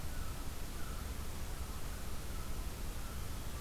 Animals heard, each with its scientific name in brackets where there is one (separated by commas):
American Herring Gull (Larus smithsonianus)